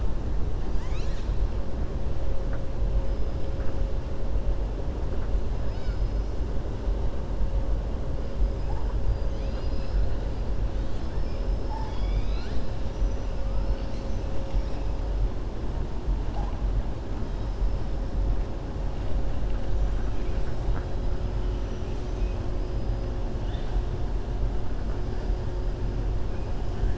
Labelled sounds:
9.1	10.1	killer whale, 2.3 to 6.4 kHz
10.8	13.3	killer whale, 0.88 to 7.0 kHz

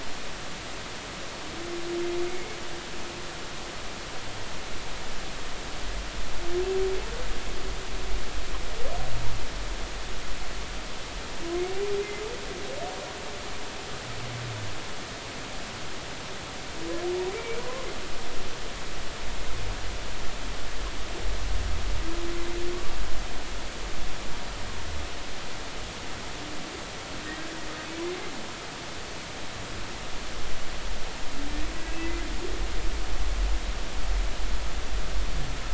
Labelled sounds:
2.3	2.6	humpback whale, 2.1 to 2.2 kHz
17.3	17.6	humpback whale, 2.2 to 2.4 kHz

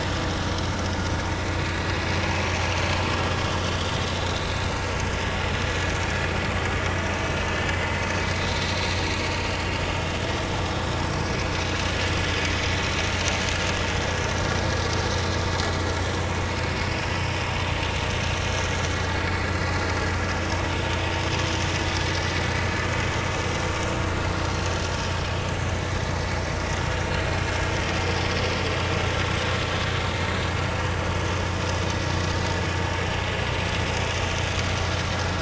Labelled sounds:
2.7	2.9	vessel noise, 4.4 to 4.6 kHz
3.7	4.5	vessel noise, 3.7 to 4.8 kHz
6.8	7.1	vessel noise, 5.7 to 6.0 kHz
8.4	8.6	vessel noise, 3.8 to 4.3 kHz
24.5	24.8	vessel noise, 4.1 to 4.3 kHz
26.1	26.4	vessel noise, 4.5 to 4.6 kHz

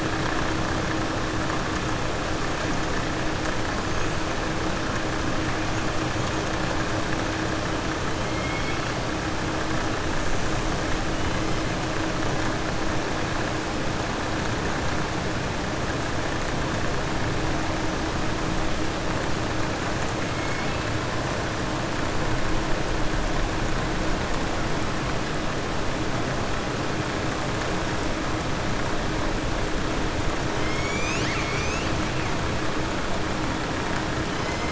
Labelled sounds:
8.3	8.9	killer whale, southern resident, 2.1 to 3.4 kHz

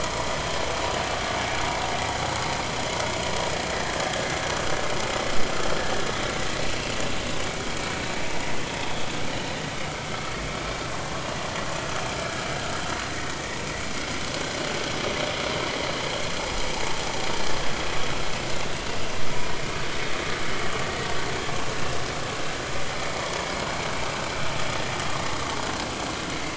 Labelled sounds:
6.6	6.9	vessel noise, 2.5 to 2.8 kHz
21.6	22.0	vessel noise, 2.6 to 2.8 kHz

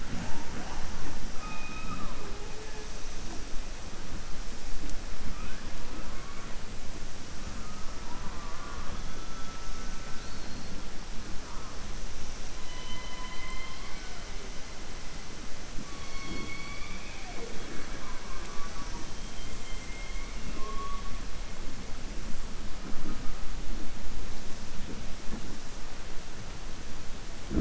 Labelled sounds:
12.6	14.2	killer whale, southern resident, 0.98 to 4.6 kHz
19.5	20.3	killer whale, southern resident, 2.1 to 3.2 kHz

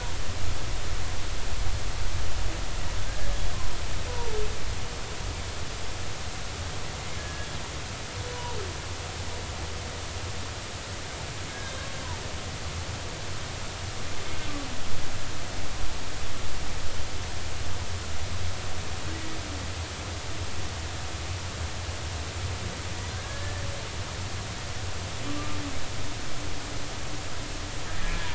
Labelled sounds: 3.0	3.3	humpback whale, 1.5 to 1.8 kHz
4.1	4.4	humpback whale, 0.86 to 1.0 kHz
6.9	7.5	humpback whale, 1.6 to 2.2 kHz
8.3	8.6	humpback whale, 0.90 to 1.0 kHz
11.5	11.8	humpback whale, 1.5 to 1.7 kHz
23.1	23.6	humpback whale, 1.5 to 1.9 kHz
27.9	28.3	humpback whale, 1.6 to 1.9 kHz

